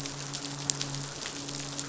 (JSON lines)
{"label": "biophony, midshipman", "recorder": "SoundTrap 500"}